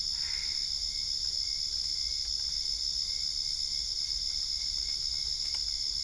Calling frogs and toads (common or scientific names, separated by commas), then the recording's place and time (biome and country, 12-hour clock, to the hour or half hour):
Boana albopunctata
Cerrado, Brazil, ~10pm